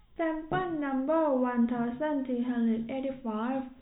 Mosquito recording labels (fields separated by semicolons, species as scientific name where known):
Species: no mosquito; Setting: cup